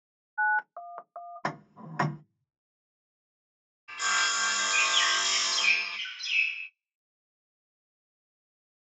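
First, the sound of a telephone is heard. After that, ticking is audible. Next, you can hear sawing. Over it, there is chirping.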